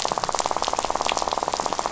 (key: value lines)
label: biophony, rattle
recorder: SoundTrap 500